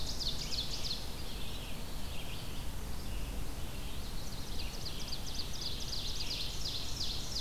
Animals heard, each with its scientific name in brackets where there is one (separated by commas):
Ovenbird (Seiurus aurocapilla), Red-eyed Vireo (Vireo olivaceus)